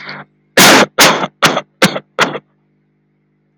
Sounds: Cough